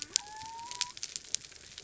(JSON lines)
{"label": "biophony", "recorder": "SoundTrap 300"}